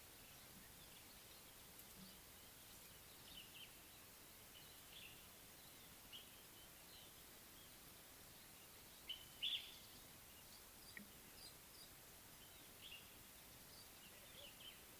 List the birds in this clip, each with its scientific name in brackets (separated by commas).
Common Bulbul (Pycnonotus barbatus), Little Bee-eater (Merops pusillus)